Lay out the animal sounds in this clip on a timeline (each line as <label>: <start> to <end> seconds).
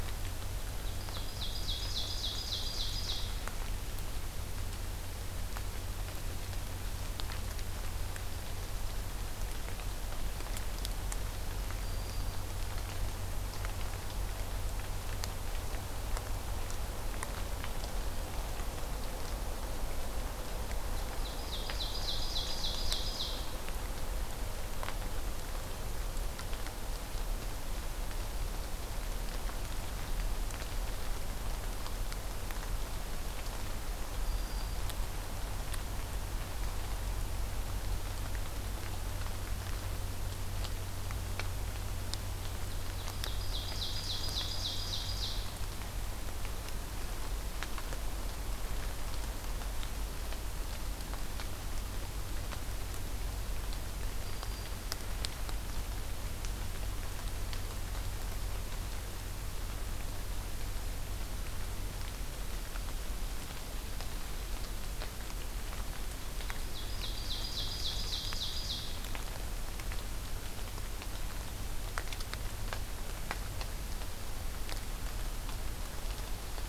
Ovenbird (Seiurus aurocapilla): 0.8 to 3.4 seconds
Black-throated Green Warbler (Setophaga virens): 11.8 to 12.4 seconds
Ovenbird (Seiurus aurocapilla): 20.9 to 23.5 seconds
Black-throated Green Warbler (Setophaga virens): 34.2 to 34.8 seconds
Ovenbird (Seiurus aurocapilla): 42.8 to 45.5 seconds
Black-throated Green Warbler (Setophaga virens): 54.0 to 54.9 seconds
Ovenbird (Seiurus aurocapilla): 66.4 to 69.0 seconds